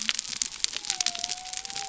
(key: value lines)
label: biophony
recorder: SoundTrap 300